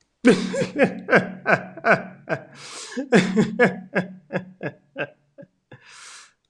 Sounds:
Laughter